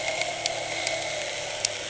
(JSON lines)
{"label": "anthrophony, boat engine", "recorder": "HydroMoth"}